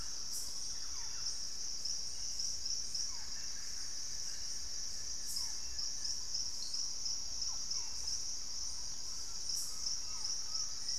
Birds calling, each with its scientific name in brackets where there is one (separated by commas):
unidentified bird, Thrush-like Wren (Campylorhynchus turdinus), Collared Trogon (Trogon collaris), Buff-throated Woodcreeper (Xiphorhynchus guttatus), Barred Forest-Falcon (Micrastur ruficollis)